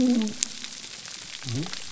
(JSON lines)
{"label": "biophony", "recorder": "SoundTrap 300"}